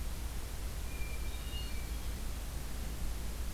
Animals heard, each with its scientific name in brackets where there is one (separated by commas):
Hermit Thrush (Catharus guttatus)